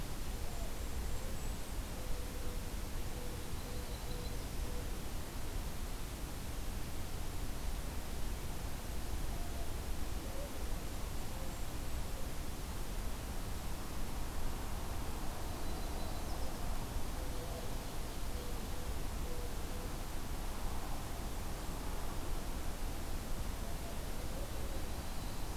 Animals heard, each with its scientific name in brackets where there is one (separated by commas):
Ovenbird (Seiurus aurocapilla), Golden-crowned Kinglet (Regulus satrapa), Yellow-rumped Warbler (Setophaga coronata)